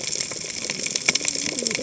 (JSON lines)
{"label": "biophony, cascading saw", "recorder": "HydroMoth"}